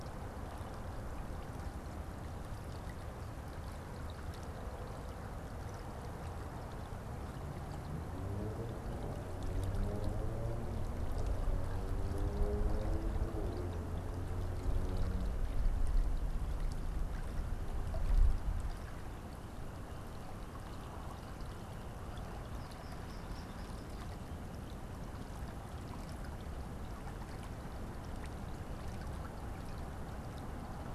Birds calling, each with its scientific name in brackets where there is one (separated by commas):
American Goldfinch (Spinus tristis)